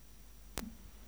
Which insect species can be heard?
Hexacentrus unicolor